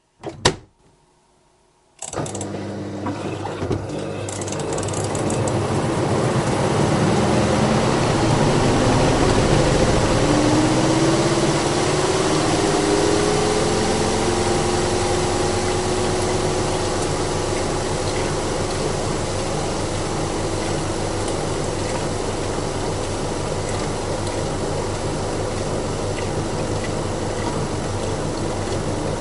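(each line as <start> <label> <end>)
0.1 The switch is turned on. 1.0
1.7 An electric motor starts up with a gradual increase in rotational speed and pitch, then maintains a stable hum at full speed. 15.1
15.2 Steady motor sound of a kitchen appliance with intermittent wet squelching and splattering. 29.2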